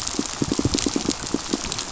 {"label": "biophony, pulse", "recorder": "SoundTrap 500"}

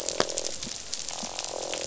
{"label": "biophony, croak", "recorder": "SoundTrap 500"}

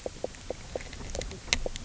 {"label": "biophony, knock croak", "recorder": "SoundTrap 300"}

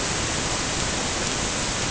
{"label": "ambient", "recorder": "HydroMoth"}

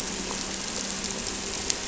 {"label": "anthrophony, boat engine", "recorder": "SoundTrap 300"}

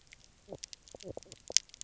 {"label": "biophony, knock croak", "recorder": "SoundTrap 300"}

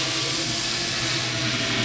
{"label": "anthrophony, boat engine", "recorder": "SoundTrap 500"}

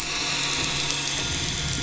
{"label": "anthrophony, boat engine", "recorder": "SoundTrap 500"}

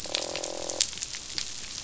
{"label": "biophony, croak", "recorder": "SoundTrap 500"}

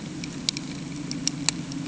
{"label": "anthrophony, boat engine", "recorder": "HydroMoth"}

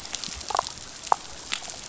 {"label": "biophony, damselfish", "recorder": "SoundTrap 500"}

